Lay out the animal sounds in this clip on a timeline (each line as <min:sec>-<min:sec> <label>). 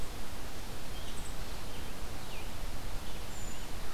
0:00.8-0:03.7 Rose-breasted Grosbeak (Pheucticus ludovicianus)
0:03.2-0:03.7 Brown Creeper (Certhia americana)